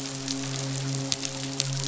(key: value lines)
label: biophony, midshipman
recorder: SoundTrap 500